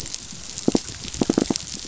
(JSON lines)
{"label": "biophony, knock", "recorder": "SoundTrap 500"}